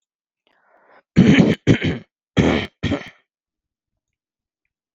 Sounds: Throat clearing